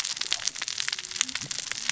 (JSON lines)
{"label": "biophony, cascading saw", "recorder": "SoundTrap 600 or HydroMoth"}